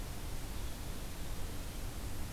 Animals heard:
forest ambience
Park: Acadia National Park